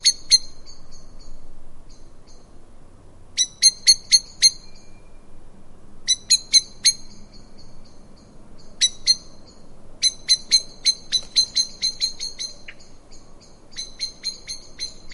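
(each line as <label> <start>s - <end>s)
A bird chirps loudly and repeatedly outside. 0.0s - 0.7s
A wind rushes continuously and softly in the distance. 0.0s - 15.1s
A bird chirps softly in the distance with an irregular pattern. 0.6s - 2.7s
A bird chirps softly in the distance with an irregular pattern. 3.3s - 15.1s
A bird chirps loudly and repeatedly outside. 3.4s - 4.7s
A bird chirps loudly and repeatedly outside. 6.0s - 7.3s
A bird chirps loudly and repeatedly outside. 8.7s - 9.4s
A bird repeatedly chirps loudly and distinctly outside, gradually fading, accompanied by brief wing flapping. 10.0s - 12.7s
A bird chirps once sharply and shrill. 12.7s - 12.8s
A bird chirps repeatedly at a moderate volume. 13.7s - 15.1s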